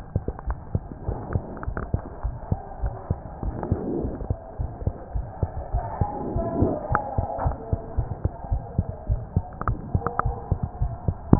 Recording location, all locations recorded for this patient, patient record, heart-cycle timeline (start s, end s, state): aortic valve (AV)
aortic valve (AV)+pulmonary valve (PV)+tricuspid valve (TV)+mitral valve (MV)
#Age: Child
#Sex: Female
#Height: 98.0 cm
#Weight: 16.6 kg
#Pregnancy status: False
#Murmur: Absent
#Murmur locations: nan
#Most audible location: nan
#Systolic murmur timing: nan
#Systolic murmur shape: nan
#Systolic murmur grading: nan
#Systolic murmur pitch: nan
#Systolic murmur quality: nan
#Diastolic murmur timing: nan
#Diastolic murmur shape: nan
#Diastolic murmur grading: nan
#Diastolic murmur pitch: nan
#Diastolic murmur quality: nan
#Outcome: Normal
#Campaign: 2015 screening campaign
0.00	0.44	unannotated
0.44	0.58	S1
0.58	0.72	systole
0.72	0.82	S2
0.82	1.04	diastole
1.04	1.18	S1
1.18	1.32	systole
1.32	1.42	S2
1.42	1.64	diastole
1.64	1.76	S1
1.76	1.90	systole
1.90	2.00	S2
2.00	2.22	diastole
2.22	2.36	S1
2.36	2.48	systole
2.48	2.60	S2
2.60	2.80	diastole
2.80	2.94	S1
2.94	3.06	systole
3.06	3.18	S2
3.18	3.44	diastole
3.44	3.56	S1
3.56	3.70	systole
3.70	3.80	S2
3.80	3.96	diastole
3.96	4.12	S1
4.12	4.26	systole
4.26	4.38	S2
4.38	4.60	diastole
4.60	4.72	S1
4.72	4.82	systole
4.82	4.94	S2
4.94	5.14	diastole
5.14	5.26	S1
5.26	5.38	systole
5.38	5.50	S2
5.50	5.72	diastole
5.72	5.86	S1
5.86	5.98	systole
5.98	6.10	S2
6.10	6.32	diastole
6.32	6.46	S1
6.46	6.56	systole
6.56	6.72	S2
6.72	6.90	diastole
6.90	7.00	S1
7.00	7.14	systole
7.14	7.28	S2
7.28	7.44	diastole
7.44	7.58	S1
7.58	7.68	systole
7.68	7.80	S2
7.80	7.96	diastole
7.96	8.10	S1
8.10	8.22	systole
8.22	8.34	S2
8.34	8.50	diastole
8.50	8.64	S1
8.64	8.74	systole
8.74	8.86	S2
8.86	9.06	diastole
9.06	9.19	S1
9.19	9.32	systole
9.32	9.44	S2
9.44	9.66	diastole
9.66	9.80	S1
9.80	9.92	systole
9.92	10.04	S2
10.04	10.24	diastole
10.24	10.38	S1
10.38	10.50	systole
10.50	10.62	S2
10.62	10.80	diastole
10.80	10.94	S1
10.94	11.04	systole
11.04	11.16	S2
11.16	11.39	unannotated